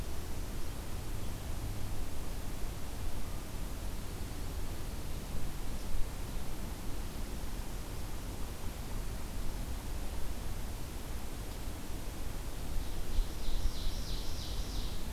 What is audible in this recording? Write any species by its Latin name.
Seiurus aurocapilla